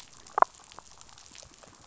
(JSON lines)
{"label": "biophony, damselfish", "recorder": "SoundTrap 500"}